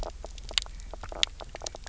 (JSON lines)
{"label": "biophony, knock croak", "recorder": "SoundTrap 300"}